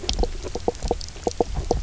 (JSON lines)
{"label": "biophony, knock croak", "recorder": "SoundTrap 300"}